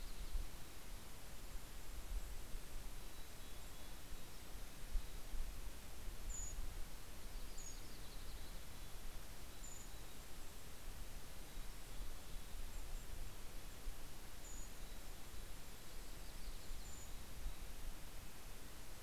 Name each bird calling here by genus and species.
Setophaga coronata, Piranga ludoviciana, Poecile gambeli, Certhia americana, Regulus satrapa